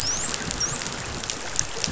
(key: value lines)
label: biophony, dolphin
recorder: SoundTrap 500